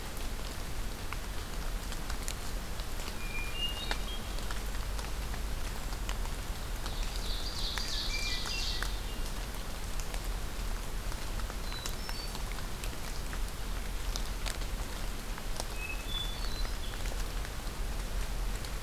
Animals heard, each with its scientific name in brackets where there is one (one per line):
Hermit Thrush (Catharus guttatus)
Ovenbird (Seiurus aurocapilla)